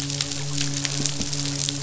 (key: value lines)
label: biophony, midshipman
recorder: SoundTrap 500